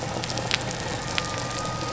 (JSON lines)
{"label": "biophony", "recorder": "SoundTrap 300"}